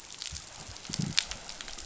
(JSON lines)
{"label": "biophony", "recorder": "SoundTrap 500"}